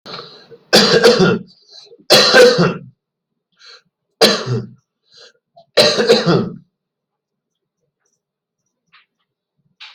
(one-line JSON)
{"expert_labels": [{"quality": "good", "cough_type": "dry", "dyspnea": true, "wheezing": false, "stridor": false, "choking": false, "congestion": false, "nothing": false, "diagnosis": "obstructive lung disease", "severity": "mild"}], "age": 32, "gender": "male", "respiratory_condition": true, "fever_muscle_pain": false, "status": "symptomatic"}